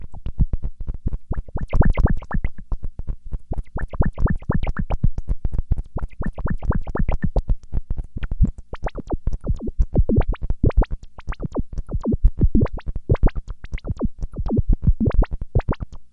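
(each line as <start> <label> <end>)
0.0 Short, high-pitched electronic beeps repeating steadily. 16.1
1.6 A high-pitched bleep repeats in the background. 2.6
3.8 A high-pitched bleep repeats in the background. 5.1
5.9 A high-pitched bleep repeats in the background. 7.4
8.7 A high-pitched bleep sound repeats continuously in the background. 16.1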